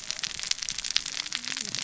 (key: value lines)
label: biophony, cascading saw
recorder: SoundTrap 600 or HydroMoth